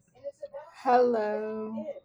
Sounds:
Cough